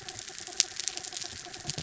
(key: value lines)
label: anthrophony, mechanical
recorder: SoundTrap 300